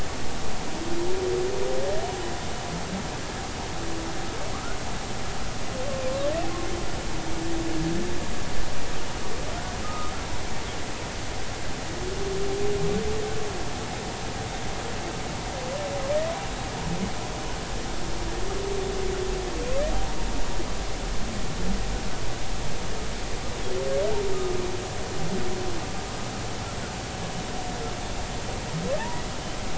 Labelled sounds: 4.5	4.8	humpback whale, 1.1 to 1.5 kHz
9.8	10.1	humpback whale, 1.2 to 1.3 kHz
29.0	29.2	humpback whale, 0.83 to 1.0 kHz

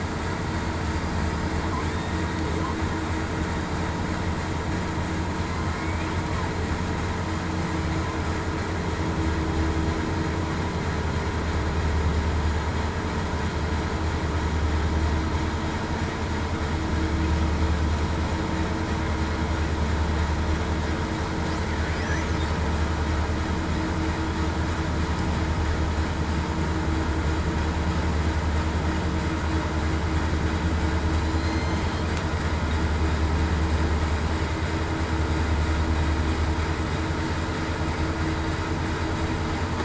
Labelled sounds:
31.2	32.0	killer whale, southern resident, 4.0 to 6.4 kHz

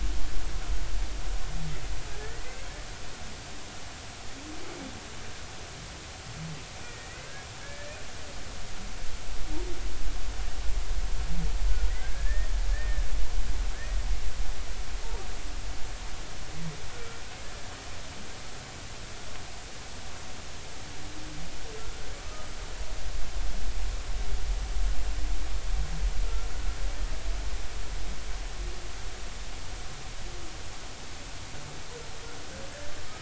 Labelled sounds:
2.2	2.7	humpback whale, 1.7 to 2.2 kHz
6.8	8.0	humpback whale, 1.5 to 2.3 kHz
11.9	13.1	humpback whale, 1.5 to 1.9 kHz
16.9	17.2	humpback whale, 1.3 to 1.5 kHz
22.2	22.5	humpback whale, 1.2 to 1.3 kHz
26.2	26.5	humpback whale, 1.3 to 1.4 kHz

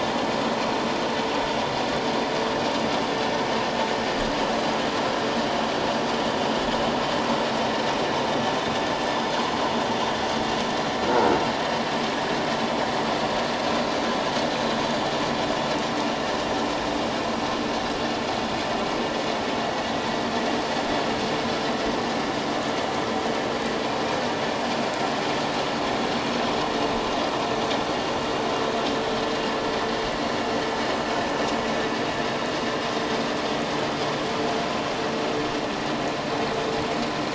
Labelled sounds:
11.0	11.3	croaking sound likely from a nearby submerged object, 1.4 to 1.5 kHz

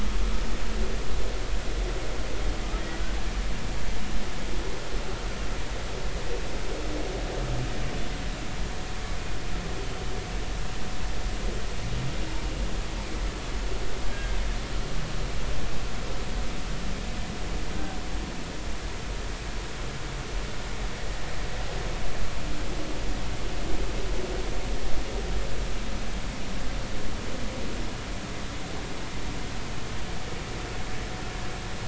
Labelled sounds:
14.1	14.4	humpback whale, 1.5 to 1.7 kHz

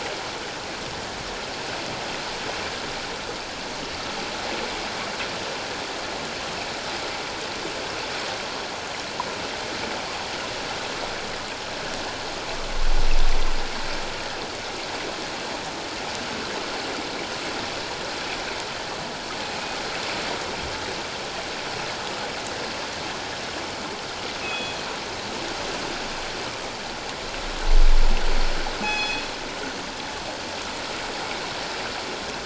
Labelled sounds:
24.4	24.8	killer whale, northern resident, G clan, call N24ii, 2.4 to 3.4 kHz
28.8	29.2	killer whale, northern resident, G clan, call N24ii, 2.5 to 7.0 kHz

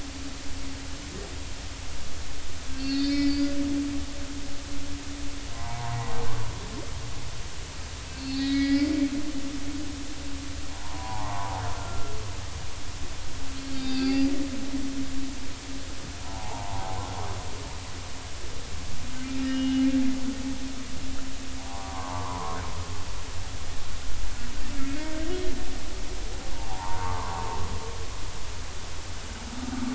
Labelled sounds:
2.7	3.6	humpback whale, 2.2 to 5.5 kHz
5.5	6.0	humpback whale, 0.80 to 1.1 kHz
8.1	8.9	humpback whale, 1.6 to 5.2 kHz
9.4	9.9	humpback whale, 1.9 to 3.6 kHz
10.7	12.1	humpback whale, 0.80 to 1.4 kHz
13.7	14.3	humpback whale, 2.5 to 4.9 kHz
16.2	17.0	humpback whale, 0.80 to 1.1 kHz
19.4	19.9	humpback whale, 2.8 to 3.0 kHz
21.7	22.6	humpback whale, 0.80 to 1.2 kHz
24.7	25.1	humpback whale, 2.1 to 2.3 kHz
26.5	27.6	humpback whale, 0.80 to 1.2 kHz

